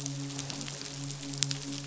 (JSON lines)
{"label": "biophony, midshipman", "recorder": "SoundTrap 500"}